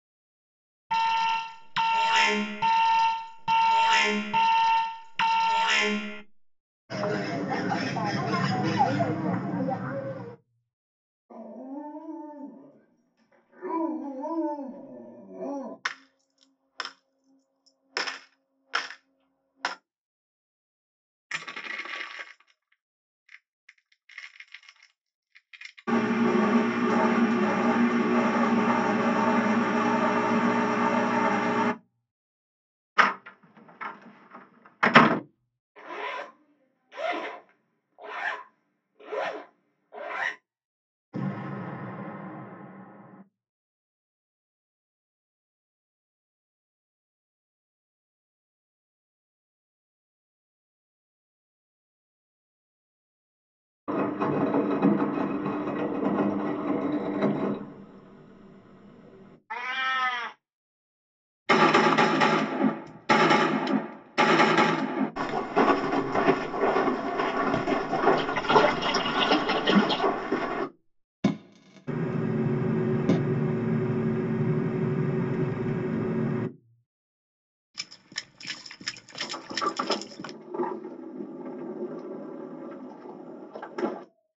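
At 0.9 seconds, you can hear an alarm. After that, at 6.89 seconds, a bird is audible. Later, at 11.29 seconds, a dog can be heard. Following that, at 15.83 seconds, a coin drops. Afterwards, at 21.29 seconds, you can hear crushing. After that, at 25.87 seconds, there is the sound of an engine. At 32.96 seconds, a door slams. Next, at 35.75 seconds, you can hear a zipper. Afterwards, at 41.12 seconds, an explosion can be heard. At 53.87 seconds, an engine is heard. Then at 59.5 seconds, a cat meows. After that, at 61.46 seconds, there is gunfire. Next, at 65.15 seconds, someone walks. While that goes on, at 68.16 seconds, you can hear splashing. Later, at 71.22 seconds, fireworks can be heard. Meanwhile, at 71.87 seconds, the sound of an engine is heard. Afterwards, at 77.74 seconds, someone runs. As that goes on, at 79.2 seconds, there is the sound of a sliding door.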